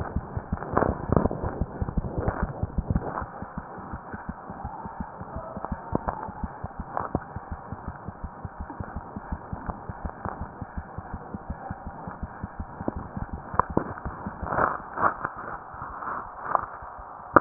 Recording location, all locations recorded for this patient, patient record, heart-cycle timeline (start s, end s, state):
mitral valve (MV)
mitral valve (MV)
#Age: Infant
#Sex: Female
#Height: 61.0 cm
#Weight: 5.75 kg
#Pregnancy status: False
#Murmur: Unknown
#Murmur locations: nan
#Most audible location: nan
#Systolic murmur timing: nan
#Systolic murmur shape: nan
#Systolic murmur grading: nan
#Systolic murmur pitch: nan
#Systolic murmur quality: nan
#Diastolic murmur timing: nan
#Diastolic murmur shape: nan
#Diastolic murmur grading: nan
#Diastolic murmur pitch: nan
#Diastolic murmur quality: nan
#Outcome: Abnormal
#Campaign: 2015 screening campaign
0.00	7.33	unannotated
7.33	7.39	S1
7.39	7.50	systole
7.50	7.57	S2
7.57	7.71	diastole
7.71	7.76	S1
7.76	7.86	systole
7.86	7.93	S2
7.93	8.06	diastole
8.06	8.12	S1
8.12	8.22	systole
8.22	8.29	S2
8.29	8.42	diastole
8.42	8.49	S1
8.49	8.58	systole
8.58	8.66	S2
8.66	8.78	diastole
8.78	8.85	S1
8.85	8.94	systole
8.94	9.01	S2
9.01	9.14	diastole
9.14	9.20	S1
9.20	9.30	systole
9.30	9.38	S2
9.38	9.51	diastole
9.51	9.56	S1
9.56	9.67	systole
9.67	9.72	S2
9.72	9.87	diastole
9.87	9.93	S1
9.93	17.41	unannotated